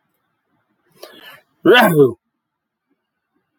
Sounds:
Sneeze